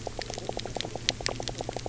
{"label": "biophony, knock croak", "recorder": "SoundTrap 300"}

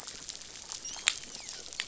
{"label": "biophony, dolphin", "recorder": "SoundTrap 500"}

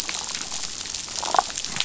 {"label": "biophony, damselfish", "recorder": "SoundTrap 500"}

